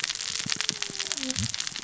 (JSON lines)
{"label": "biophony, cascading saw", "recorder": "SoundTrap 600 or HydroMoth"}